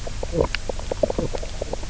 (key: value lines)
label: biophony, knock croak
recorder: SoundTrap 300